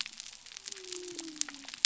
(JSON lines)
{"label": "biophony", "recorder": "SoundTrap 300"}